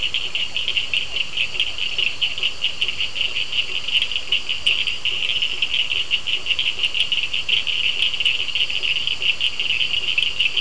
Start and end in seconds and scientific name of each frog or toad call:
0.0	3.5	Physalaemus cuvieri
0.0	10.6	Boana faber
0.0	10.6	Elachistocleis bicolor
0.0	10.6	Sphaenorhynchus surdus